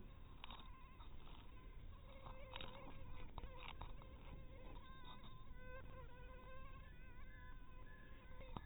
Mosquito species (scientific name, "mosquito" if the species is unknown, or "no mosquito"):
mosquito